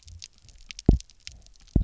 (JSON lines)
{"label": "biophony, double pulse", "recorder": "SoundTrap 300"}